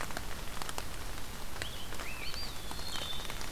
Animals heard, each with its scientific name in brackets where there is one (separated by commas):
Rose-breasted Grosbeak (Pheucticus ludovicianus), Wood Thrush (Hylocichla mustelina), Eastern Wood-Pewee (Contopus virens)